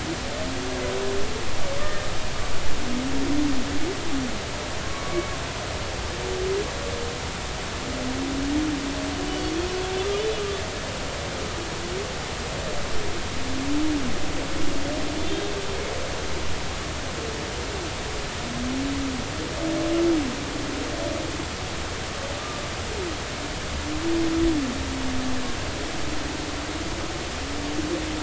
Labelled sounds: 1.8	2.1	humpback whale, 1.8 to 1.9 kHz
4.8	5.2	humpback whale, 1.1 to 1.2 kHz
15.2	15.5	humpback whale, 3.4 to 3.7 kHz

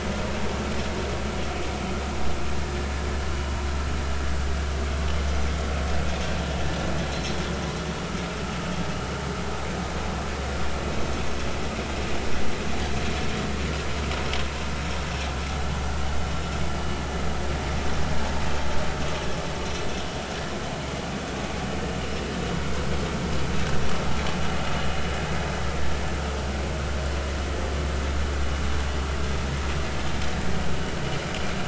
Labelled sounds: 7.1	7.4	vessel noise, 4.0 to 4.2 kHz

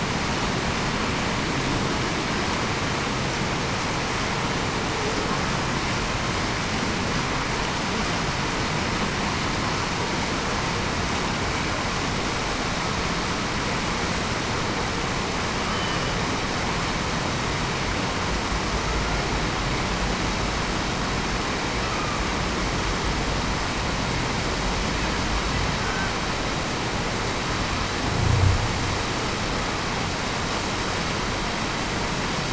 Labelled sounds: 15.7	16.1	killer whale, Bigg's (transient), 2.9 to 3.1 kHz

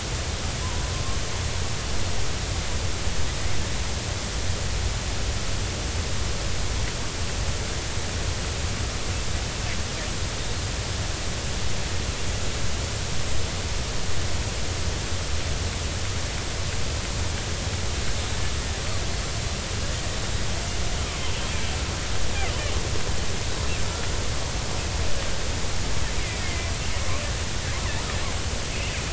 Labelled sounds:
0.6	0.9	killer whale, Bigg's (transient), 0.90 to 1.1 kHz
22.5	22.8	killer whale, Bigg's (transient), 2.7 to 3.2 kHz
26.3	26.7	killer whale, Bigg's (transient), 2.0 to 2.5 kHz

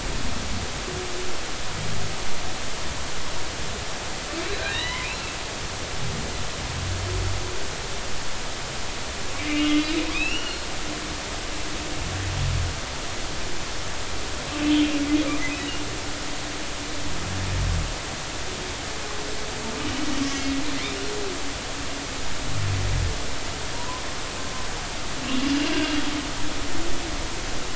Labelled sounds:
4.5	5.1	humpback whale, 0.93 to 4.1 kHz
9.4	9.7	humpback whale, 2.8 to 2.9 kHz
10.1	10.7	humpback whale, 1.4 to 4.4 kHz
23.7	24.0	humpback whale, 0.90 to 1.1 kHz

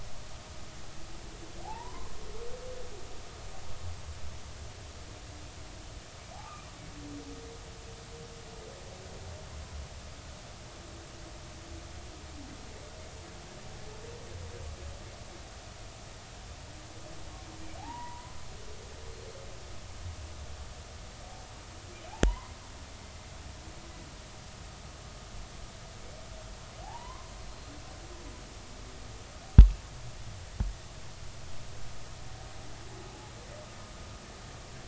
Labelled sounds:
1.6	2.1	humpback whale, 0.80 to 1.1 kHz
17.8	18.4	humpback whale, 0.80 to 1.1 kHz
22.1	22.6	humpback whale, 0.80 to 2.2 kHz
26.8	27.3	humpback whale, 0.80 to 1.2 kHz

